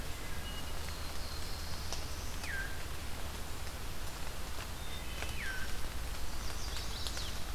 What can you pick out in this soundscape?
Wood Thrush, Black-throated Blue Warbler, Cedar Waxwing, Veery, Chestnut-sided Warbler